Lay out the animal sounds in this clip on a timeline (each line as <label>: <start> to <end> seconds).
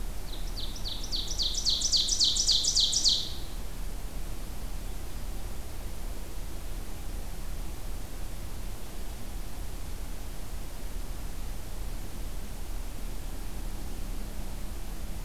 Ovenbird (Seiurus aurocapilla): 0.1 to 3.4 seconds